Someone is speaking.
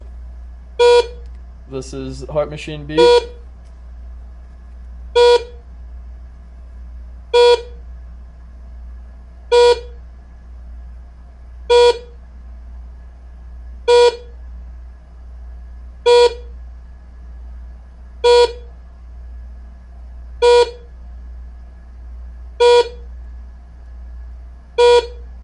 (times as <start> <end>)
1.6 3.0